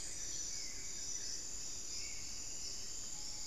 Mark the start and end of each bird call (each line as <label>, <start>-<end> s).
Buff-throated Woodcreeper (Xiphorhynchus guttatus), 0.0-1.6 s
Hauxwell's Thrush (Turdus hauxwelli), 0.0-3.5 s
Spot-winged Antshrike (Pygiptila stellaris), 0.0-3.5 s